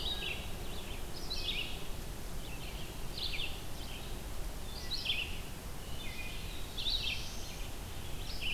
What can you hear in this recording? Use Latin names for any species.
Vireo olivaceus, Hylocichla mustelina, Setophaga caerulescens